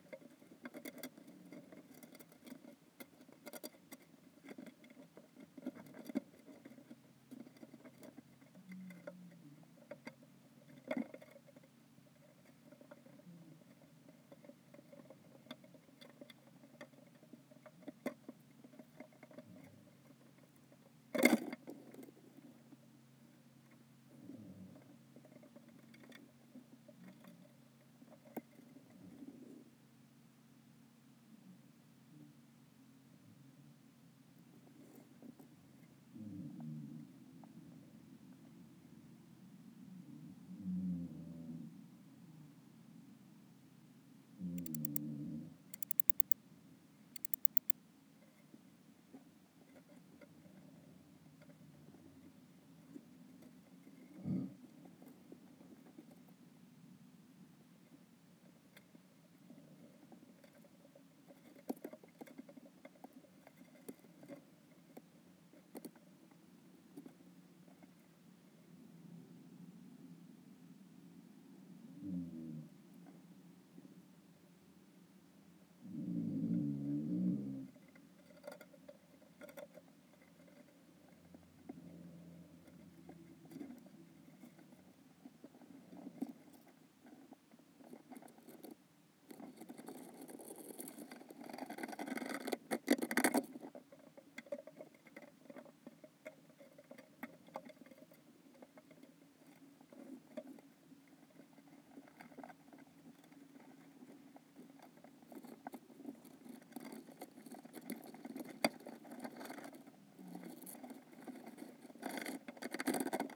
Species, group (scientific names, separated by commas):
Metaplastes ornatus, Orthoptera